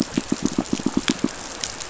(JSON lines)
{"label": "biophony, pulse", "recorder": "SoundTrap 500"}